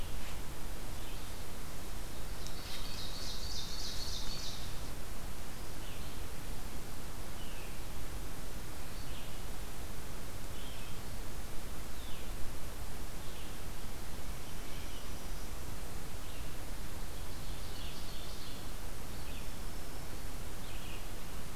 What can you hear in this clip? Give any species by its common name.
Red-eyed Vireo, Ovenbird, Black-throated Green Warbler